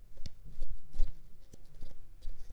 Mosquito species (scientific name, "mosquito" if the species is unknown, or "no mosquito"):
Culex pipiens complex